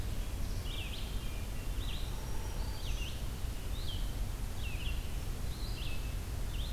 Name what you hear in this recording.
Red-eyed Vireo, Hermit Thrush, Black-throated Green Warbler, Hairy Woodpecker